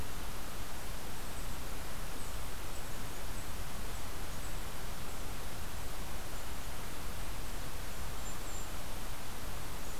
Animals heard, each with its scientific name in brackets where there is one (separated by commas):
Golden-crowned Kinglet (Regulus satrapa)